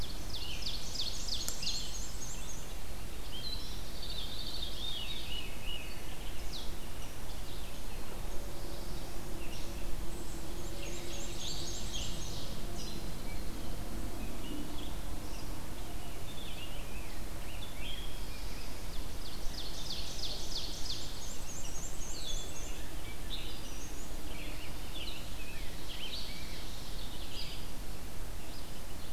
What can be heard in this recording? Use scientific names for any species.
Seiurus aurocapilla, Vireo olivaceus, Mniotilta varia, Catharus fuscescens, Setophaga caerulescens, Setophaga pinus